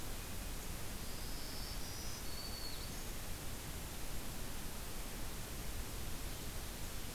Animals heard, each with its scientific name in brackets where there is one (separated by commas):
Black-throated Green Warbler (Setophaga virens)